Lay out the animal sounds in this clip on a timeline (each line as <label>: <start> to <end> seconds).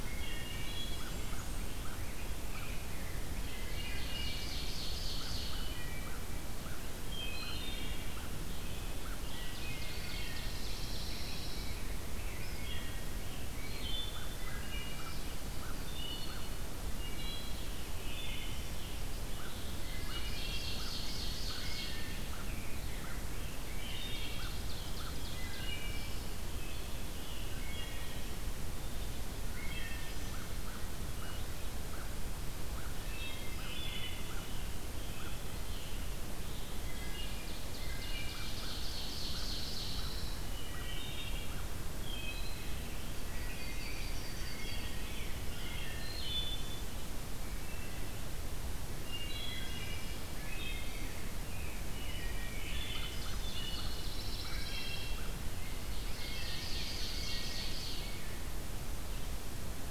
Wood Thrush (Hylocichla mustelina): 0.0 to 0.8 seconds
Blackburnian Warbler (Setophaga fusca): 0.6 to 1.9 seconds
American Crow (Corvus brachyrhynchos): 0.7 to 3.3 seconds
Rose-breasted Grosbeak (Pheucticus ludovicianus): 1.1 to 4.0 seconds
Ovenbird (Seiurus aurocapilla): 3.4 to 5.8 seconds
Wood Thrush (Hylocichla mustelina): 3.6 to 4.6 seconds
American Crow (Corvus brachyrhynchos): 4.9 to 9.2 seconds
Wood Thrush (Hylocichla mustelina): 5.4 to 6.2 seconds
Wood Thrush (Hylocichla mustelina): 7.1 to 8.3 seconds
Wood Thrush (Hylocichla mustelina): 9.3 to 10.0 seconds
Ovenbird (Seiurus aurocapilla): 9.8 to 11.2 seconds
Pine Warbler (Setophaga pinus): 10.2 to 11.8 seconds
Scarlet Tanager (Piranga olivacea): 11.0 to 14.0 seconds
Wood Thrush (Hylocichla mustelina): 12.5 to 13.2 seconds
Wood Thrush (Hylocichla mustelina): 13.4 to 15.3 seconds
American Crow (Corvus brachyrhynchos): 14.1 to 16.4 seconds
Wood Thrush (Hylocichla mustelina): 15.8 to 17.7 seconds
Scarlet Tanager (Piranga olivacea): 17.6 to 19.7 seconds
Wood Thrush (Hylocichla mustelina): 17.9 to 18.7 seconds
American Crow (Corvus brachyrhynchos): 19.2 to 25.2 seconds
Ovenbird (Seiurus aurocapilla): 19.7 to 22.1 seconds
Wood Thrush (Hylocichla mustelina): 20.1 to 20.9 seconds
Rose-breasted Grosbeak (Pheucticus ludovicianus): 21.9 to 24.3 seconds
Ovenbird (Seiurus aurocapilla): 23.6 to 25.9 seconds
Wood Thrush (Hylocichla mustelina): 23.6 to 24.4 seconds
Wood Thrush (Hylocichla mustelina): 25.2 to 26.3 seconds
Scarlet Tanager (Piranga olivacea): 25.7 to 27.6 seconds
Wood Thrush (Hylocichla mustelina): 27.5 to 28.3 seconds
Wood Thrush (Hylocichla mustelina): 29.5 to 30.5 seconds
American Crow (Corvus brachyrhynchos): 30.1 to 35.4 seconds
Wood Thrush (Hylocichla mustelina): 33.0 to 34.3 seconds
Scarlet Tanager (Piranga olivacea): 34.1 to 37.0 seconds
Wood Thrush (Hylocichla mustelina): 36.6 to 38.3 seconds
Ovenbird (Seiurus aurocapilla): 36.8 to 40.4 seconds
American Crow (Corvus brachyrhynchos): 38.2 to 42.3 seconds
Pine Warbler (Setophaga pinus): 39.1 to 40.5 seconds
Wood Thrush (Hylocichla mustelina): 40.3 to 41.6 seconds
Wood Thrush (Hylocichla mustelina): 42.0 to 42.8 seconds
Yellow-rumped Warbler (Setophaga coronata): 42.7 to 45.5 seconds
Wood Thrush (Hylocichla mustelina): 43.1 to 44.2 seconds
Scarlet Tanager (Piranga olivacea): 44.0 to 46.1 seconds
Wood Thrush (Hylocichla mustelina): 44.4 to 45.0 seconds
Wood Thrush (Hylocichla mustelina): 45.6 to 46.9 seconds
Wood Thrush (Hylocichla mustelina): 47.5 to 48.3 seconds
Wood Thrush (Hylocichla mustelina): 49.1 to 51.1 seconds
Scarlet Tanager (Piranga olivacea): 50.9 to 53.2 seconds
Wood Thrush (Hylocichla mustelina): 52.0 to 52.7 seconds
American Crow (Corvus brachyrhynchos): 52.5 to 55.7 seconds
Ovenbird (Seiurus aurocapilla): 52.6 to 54.4 seconds
Pine Warbler (Setophaga pinus): 52.8 to 55.4 seconds
Wood Thrush (Hylocichla mustelina): 53.4 to 54.1 seconds
Wood Thrush (Hylocichla mustelina): 54.5 to 55.2 seconds
Ovenbird (Seiurus aurocapilla): 55.5 to 58.5 seconds
Rose-breasted Grosbeak (Pheucticus ludovicianus): 55.5 to 58.5 seconds
Wood Thrush (Hylocichla mustelina): 57.0 to 57.7 seconds